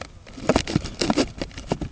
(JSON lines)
{"label": "ambient", "recorder": "HydroMoth"}